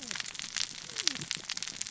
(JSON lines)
{"label": "biophony, cascading saw", "recorder": "SoundTrap 600 or HydroMoth"}